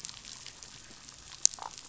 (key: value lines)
label: biophony, damselfish
recorder: SoundTrap 500